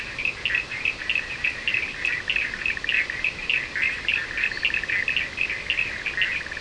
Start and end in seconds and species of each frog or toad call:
0.0	6.6	Boana bischoffi
0.0	6.6	Sphaenorhynchus surdus
4.3	4.9	Boana leptolineata
Atlantic Forest, Brazil, 3:30am

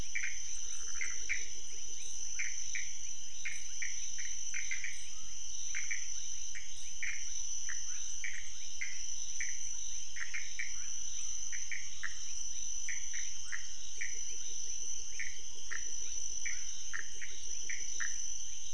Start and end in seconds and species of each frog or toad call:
0.0	18.2	Pithecopus azureus
0.0	18.7	Leptodactylus fuscus
Cerrado, Brazil, 4:00am

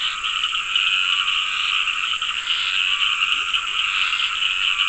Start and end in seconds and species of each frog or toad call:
0.0	4.8	Dendropsophus nahdereri
0.0	4.8	Scinax perereca
0.0	4.8	Sphaenorhynchus surdus
3.2	3.9	Leptodactylus latrans
Atlantic Forest, Brazil, 7:30pm

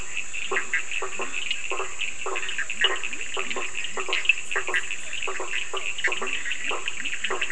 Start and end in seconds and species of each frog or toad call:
0.0	7.5	Boana faber
0.0	7.5	Leptodactylus latrans
0.0	7.5	Sphaenorhynchus surdus
0.5	7.5	Boana bischoffi
Atlantic Forest, Brazil, 9:45pm

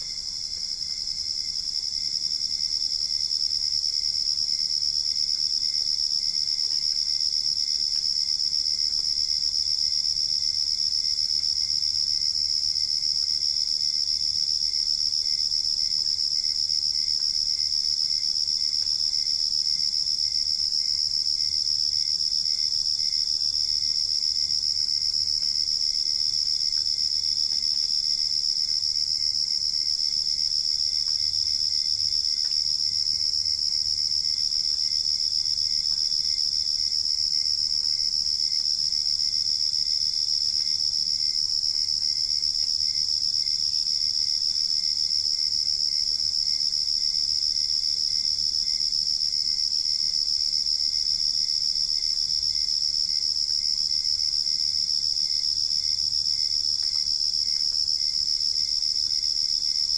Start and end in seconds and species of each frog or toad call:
none
Cerrado, Brazil, 4:45am

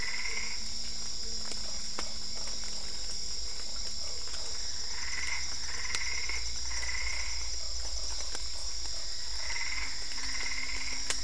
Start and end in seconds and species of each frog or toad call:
0.0	0.8	Boana albopunctata
0.0	11.2	Boana lundii
4.7	7.7	Boana albopunctata
4.7	11.2	Dendropsophus cruzi
9.4	11.2	Boana albopunctata
Cerrado, Brazil, 8:30pm

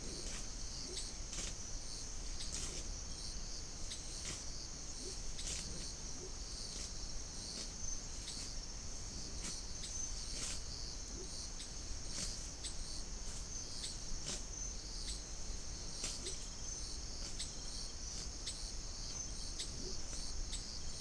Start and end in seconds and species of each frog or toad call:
0.8	1.1	Leptodactylus latrans
4.9	5.3	Leptodactylus latrans
6.0	6.4	Leptodactylus latrans
11.0	11.4	Leptodactylus latrans
16.1	16.4	Leptodactylus latrans
19.7	20.0	Leptodactylus latrans
Atlantic Forest, Brazil, 6:00pm

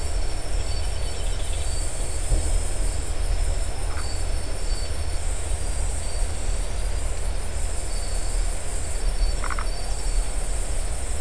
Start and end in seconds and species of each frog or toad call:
3.8	4.1	Phyllomedusa distincta
9.4	9.7	Phyllomedusa distincta
Atlantic Forest, Brazil, 1:00am

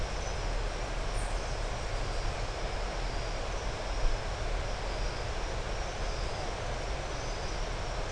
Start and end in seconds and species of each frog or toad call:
none
Atlantic Forest, Brazil, 6:15pm

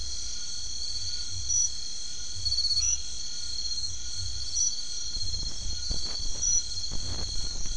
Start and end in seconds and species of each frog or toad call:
0.0	7.7	Scinax alter
2.7	3.1	Boana albomarginata
Atlantic Forest, Brazil, 9:00pm

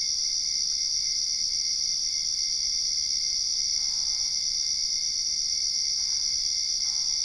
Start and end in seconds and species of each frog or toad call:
3.7	4.5	Boana albopunctata
6.8	7.2	Boana albopunctata
Cerrado, Brazil, 9:15pm

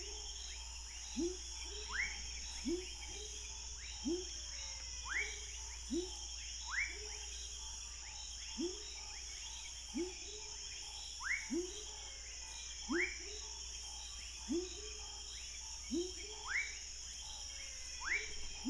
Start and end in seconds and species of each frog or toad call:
0.0	18.6	Leptodactylus fuscus
1.0	18.6	Leptodactylus labyrinthicus
Cerrado, Brazil, 9:30pm

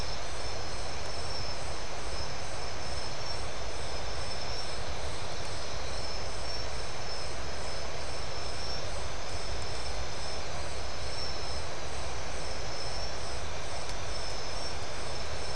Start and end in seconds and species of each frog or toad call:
none
Atlantic Forest, Brazil, 3:45am

